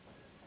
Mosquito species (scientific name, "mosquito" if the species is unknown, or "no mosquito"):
Anopheles gambiae s.s.